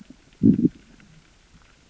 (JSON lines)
{"label": "biophony, growl", "recorder": "SoundTrap 600 or HydroMoth"}